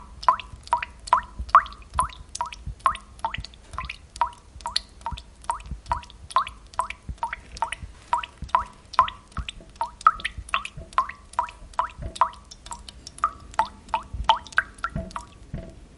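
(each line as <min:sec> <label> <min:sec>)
0:00.0 Water dripping. 0:16.0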